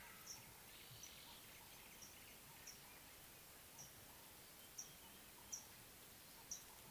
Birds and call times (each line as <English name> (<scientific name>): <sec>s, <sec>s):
Mariqua Sunbird (Cinnyris mariquensis): 5.5s